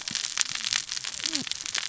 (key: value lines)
label: biophony, cascading saw
recorder: SoundTrap 600 or HydroMoth